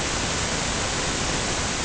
{"label": "ambient", "recorder": "HydroMoth"}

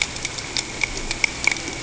{"label": "ambient", "recorder": "HydroMoth"}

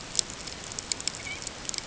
{"label": "ambient", "recorder": "HydroMoth"}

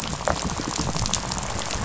{"label": "biophony, rattle", "recorder": "SoundTrap 500"}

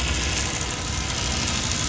{"label": "anthrophony, boat engine", "recorder": "SoundTrap 500"}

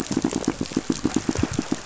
{"label": "biophony, pulse", "recorder": "SoundTrap 500"}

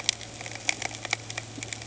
{"label": "anthrophony, boat engine", "recorder": "HydroMoth"}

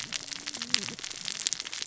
{"label": "biophony, cascading saw", "recorder": "SoundTrap 600 or HydroMoth"}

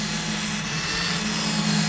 {"label": "anthrophony, boat engine", "recorder": "SoundTrap 500"}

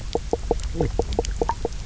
{"label": "biophony, knock croak", "recorder": "SoundTrap 300"}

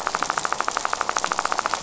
{"label": "biophony, rattle", "recorder": "SoundTrap 500"}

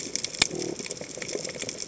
{"label": "biophony", "recorder": "HydroMoth"}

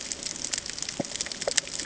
{"label": "ambient", "recorder": "HydroMoth"}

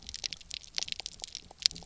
{"label": "biophony, pulse", "recorder": "SoundTrap 300"}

